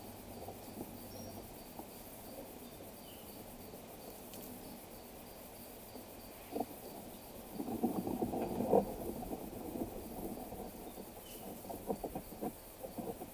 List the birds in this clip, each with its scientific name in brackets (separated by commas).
Waller's Starling (Onychognathus walleri), Cinnamon-chested Bee-eater (Merops oreobates)